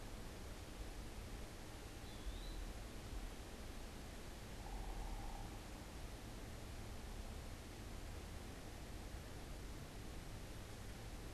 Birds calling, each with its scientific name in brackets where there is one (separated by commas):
unidentified bird, Eastern Wood-Pewee (Contopus virens)